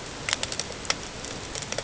{"label": "ambient", "recorder": "HydroMoth"}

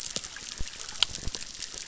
{"label": "biophony, chorus", "recorder": "SoundTrap 600"}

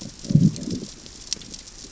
{"label": "biophony, growl", "recorder": "SoundTrap 600 or HydroMoth"}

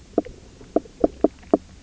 {"label": "biophony, knock croak", "recorder": "SoundTrap 300"}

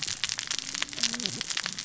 {"label": "biophony, cascading saw", "recorder": "SoundTrap 600 or HydroMoth"}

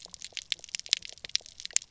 {"label": "biophony, pulse", "recorder": "SoundTrap 300"}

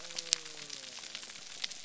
{"label": "biophony", "recorder": "SoundTrap 300"}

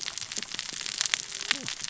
{"label": "biophony, cascading saw", "recorder": "SoundTrap 600 or HydroMoth"}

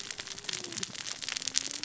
{"label": "biophony, cascading saw", "recorder": "SoundTrap 600 or HydroMoth"}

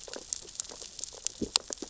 {"label": "biophony, sea urchins (Echinidae)", "recorder": "SoundTrap 600 or HydroMoth"}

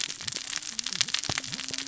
{"label": "biophony, cascading saw", "recorder": "SoundTrap 600 or HydroMoth"}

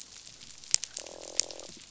{"label": "biophony, croak", "recorder": "SoundTrap 500"}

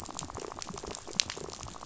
{"label": "biophony, rattle", "recorder": "SoundTrap 500"}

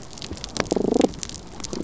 {"label": "biophony", "recorder": "SoundTrap 300"}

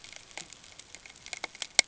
{"label": "ambient", "recorder": "HydroMoth"}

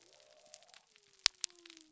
{"label": "biophony", "recorder": "SoundTrap 300"}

